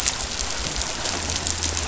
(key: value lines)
label: biophony
recorder: SoundTrap 500